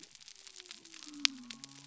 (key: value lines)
label: biophony
recorder: SoundTrap 300